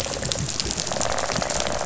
{"label": "biophony, rattle response", "recorder": "SoundTrap 500"}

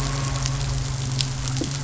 {"label": "anthrophony, boat engine", "recorder": "SoundTrap 500"}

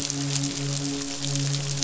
{"label": "biophony, midshipman", "recorder": "SoundTrap 500"}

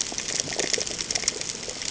{"label": "ambient", "recorder": "HydroMoth"}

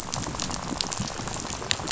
{"label": "biophony, rattle", "recorder": "SoundTrap 500"}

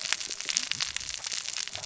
{"label": "biophony, cascading saw", "recorder": "SoundTrap 600 or HydroMoth"}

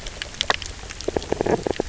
{"label": "biophony", "recorder": "SoundTrap 300"}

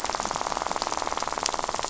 {"label": "biophony, rattle", "recorder": "SoundTrap 500"}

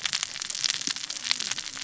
{"label": "biophony, cascading saw", "recorder": "SoundTrap 600 or HydroMoth"}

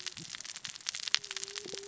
{"label": "biophony, cascading saw", "recorder": "SoundTrap 600 or HydroMoth"}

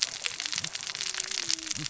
{"label": "biophony, cascading saw", "recorder": "SoundTrap 600 or HydroMoth"}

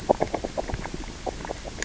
{"label": "biophony, grazing", "recorder": "SoundTrap 600 or HydroMoth"}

